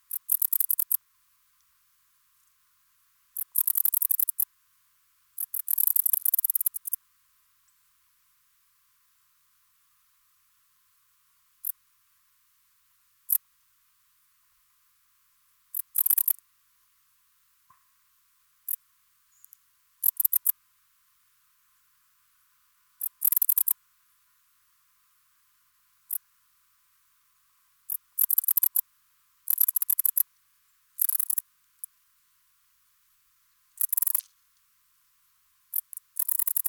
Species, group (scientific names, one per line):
Pholidoptera griseoaptera
Orthoptera